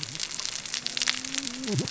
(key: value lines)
label: biophony, cascading saw
recorder: SoundTrap 600 or HydroMoth